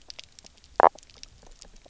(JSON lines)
{"label": "biophony, knock croak", "recorder": "SoundTrap 300"}